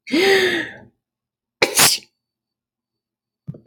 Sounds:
Sneeze